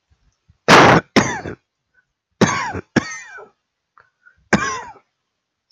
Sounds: Cough